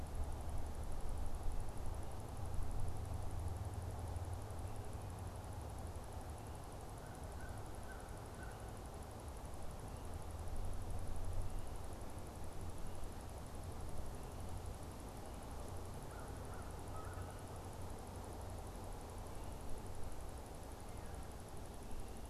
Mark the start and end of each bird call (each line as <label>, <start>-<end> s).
American Crow (Corvus brachyrhynchos), 6.7-8.9 s
American Crow (Corvus brachyrhynchos), 15.9-17.8 s